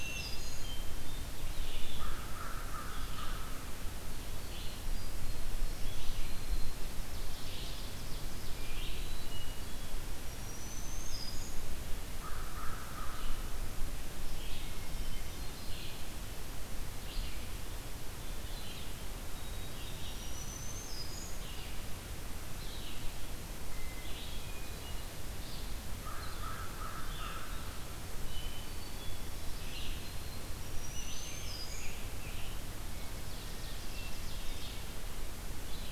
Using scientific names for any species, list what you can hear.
Setophaga virens, Catharus guttatus, Vireo olivaceus, Corvus brachyrhynchos, Seiurus aurocapilla, Piranga olivacea